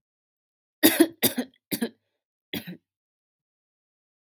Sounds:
Cough